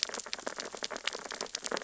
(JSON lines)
{"label": "biophony, sea urchins (Echinidae)", "recorder": "SoundTrap 600 or HydroMoth"}